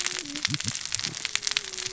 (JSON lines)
{"label": "biophony, cascading saw", "recorder": "SoundTrap 600 or HydroMoth"}